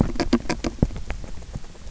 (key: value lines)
label: biophony, grazing
recorder: SoundTrap 300